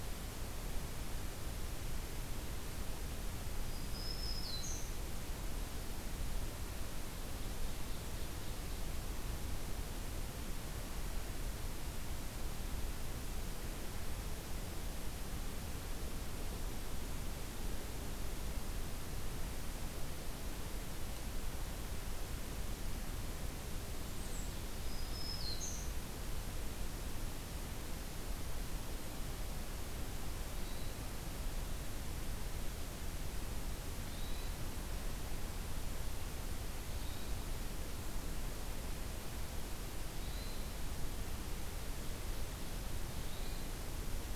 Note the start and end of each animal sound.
3.7s-5.0s: Black-throated Green Warbler (Setophaga virens)
7.1s-8.9s: Ovenbird (Seiurus aurocapilla)
23.9s-24.5s: Blackburnian Warbler (Setophaga fusca)
24.8s-26.0s: Black-throated Green Warbler (Setophaga virens)
30.6s-30.9s: Hermit Thrush (Catharus guttatus)
34.1s-34.6s: Hermit Thrush (Catharus guttatus)
36.9s-37.4s: Hermit Thrush (Catharus guttatus)
40.2s-40.7s: Hermit Thrush (Catharus guttatus)
43.2s-43.7s: Hermit Thrush (Catharus guttatus)

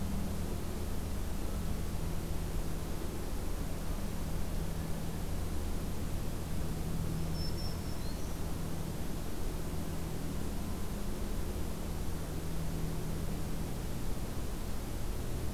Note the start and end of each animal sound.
6.9s-8.4s: Black-throated Green Warbler (Setophaga virens)

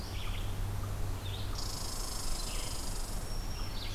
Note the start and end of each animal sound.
0.0s-3.9s: Red-eyed Vireo (Vireo olivaceus)
1.4s-3.4s: Red Squirrel (Tamiasciurus hudsonicus)
2.8s-3.9s: Black-throated Green Warbler (Setophaga virens)

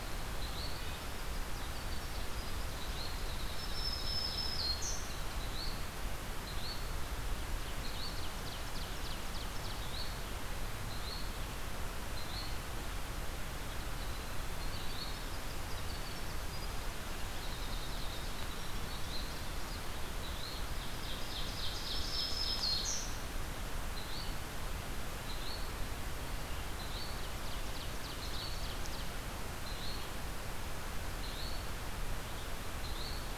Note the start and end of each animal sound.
0.0s-3.5s: Yellow-bellied Flycatcher (Empidonax flaviventris)
0.0s-5.0s: Winter Wren (Troglodytes hiemalis)
3.4s-5.4s: Black-throated Green Warbler (Setophaga virens)
5.2s-12.6s: Yellow-bellied Flycatcher (Empidonax flaviventris)
7.6s-9.7s: Ovenbird (Seiurus aurocapilla)
13.4s-19.9s: Winter Wren (Troglodytes hiemalis)
18.7s-33.4s: Yellow-bellied Flycatcher (Empidonax flaviventris)
20.5s-23.0s: Ovenbird (Seiurus aurocapilla)
21.7s-23.3s: Black-throated Green Warbler (Setophaga virens)
27.0s-29.2s: Ovenbird (Seiurus aurocapilla)

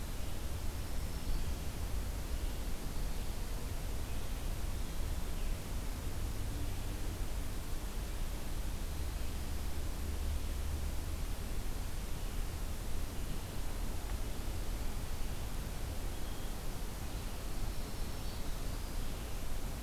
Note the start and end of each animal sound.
0.6s-1.8s: Black-throated Green Warbler (Setophaga virens)
17.5s-18.6s: Black-throated Green Warbler (Setophaga virens)

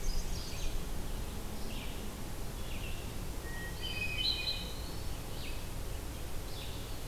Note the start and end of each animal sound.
0.0s-0.8s: Hermit Thrush (Catharus guttatus)
0.0s-7.1s: Red-eyed Vireo (Vireo olivaceus)
3.2s-5.0s: Hermit Thrush (Catharus guttatus)

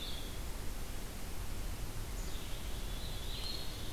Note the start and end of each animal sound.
0.0s-3.8s: Red-eyed Vireo (Vireo olivaceus)
2.0s-3.9s: Black-capped Chickadee (Poecile atricapillus)
2.9s-3.8s: Eastern Wood-Pewee (Contopus virens)

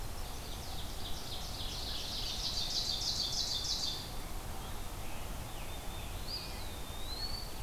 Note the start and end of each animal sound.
0.0s-1.1s: Mourning Warbler (Geothlypis philadelphia)
0.6s-4.1s: Ovenbird (Seiurus aurocapilla)
4.0s-5.7s: Scarlet Tanager (Piranga olivacea)
5.6s-6.7s: Black-throated Blue Warbler (Setophaga caerulescens)
6.2s-7.6s: Eastern Wood-Pewee (Contopus virens)

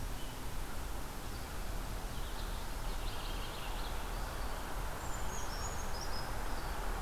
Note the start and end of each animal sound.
2.0s-2.6s: Red-eyed Vireo (Vireo olivaceus)
2.7s-4.0s: Purple Finch (Haemorhous purpureus)
4.8s-6.5s: Brown Creeper (Certhia americana)

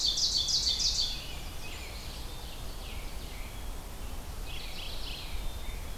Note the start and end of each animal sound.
0.0s-3.6s: Ovenbird (Seiurus aurocapilla)
0.7s-2.1s: American Robin (Turdus migratorius)
1.2s-2.4s: Blackburnian Warbler (Setophaga fusca)
2.7s-3.6s: American Robin (Turdus migratorius)
4.2s-6.0s: American Robin (Turdus migratorius)
4.3s-5.5s: Mourning Warbler (Geothlypis philadelphia)

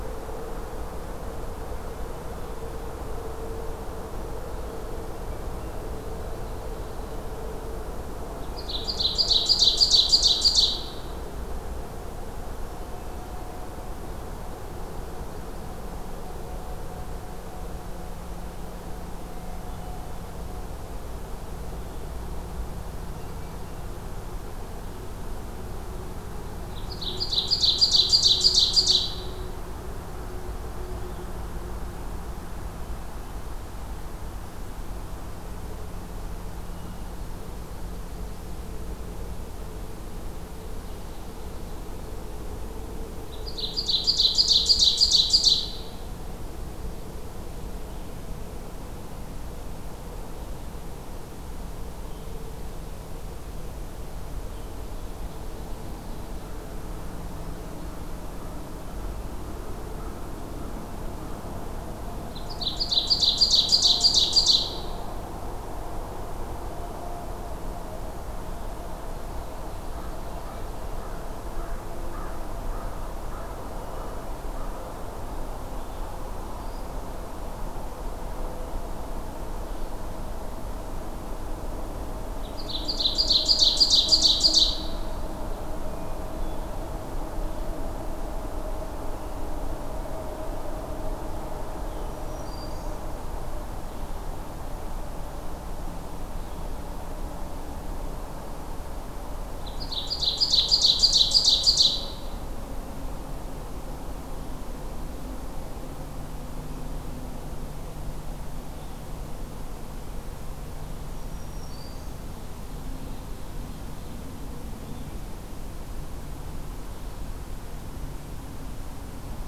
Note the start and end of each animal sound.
8.4s-11.2s: Ovenbird (Seiurus aurocapilla)
26.7s-29.2s: Ovenbird (Seiurus aurocapilla)
43.3s-46.1s: Ovenbird (Seiurus aurocapilla)
62.3s-65.1s: Ovenbird (Seiurus aurocapilla)
69.2s-70.8s: Ovenbird (Seiurus aurocapilla)
71.5s-74.8s: American Crow (Corvus brachyrhynchos)
82.4s-85.2s: Ovenbird (Seiurus aurocapilla)
85.8s-86.8s: Hermit Thrush (Catharus guttatus)
92.0s-93.1s: Black-throated Green Warbler (Setophaga virens)
99.6s-102.3s: Ovenbird (Seiurus aurocapilla)
111.1s-112.3s: Black-throated Green Warbler (Setophaga virens)
112.4s-114.3s: Ovenbird (Seiurus aurocapilla)

